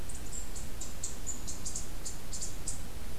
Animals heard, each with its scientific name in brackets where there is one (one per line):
Eastern Chipmunk (Tamias striatus)